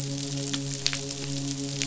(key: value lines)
label: biophony, midshipman
recorder: SoundTrap 500